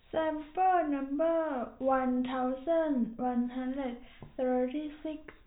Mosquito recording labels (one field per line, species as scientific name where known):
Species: no mosquito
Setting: cup